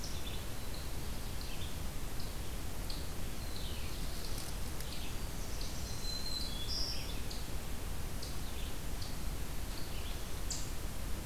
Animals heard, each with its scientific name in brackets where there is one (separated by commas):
Red-eyed Vireo (Vireo olivaceus), Black-throated Blue Warbler (Setophaga caerulescens), Black-throated Green Warbler (Setophaga virens)